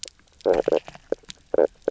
{"label": "biophony, knock croak", "recorder": "SoundTrap 300"}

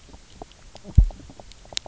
{"label": "biophony, knock croak", "recorder": "SoundTrap 300"}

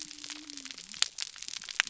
{"label": "biophony", "recorder": "SoundTrap 300"}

